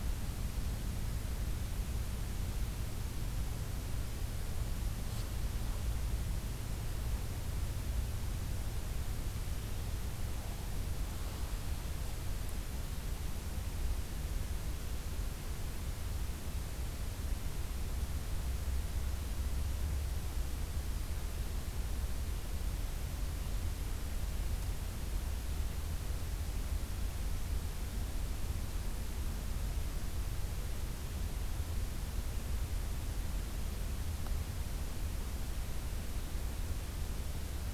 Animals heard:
forest ambience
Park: Acadia National Park